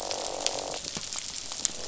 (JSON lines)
{"label": "biophony, croak", "recorder": "SoundTrap 500"}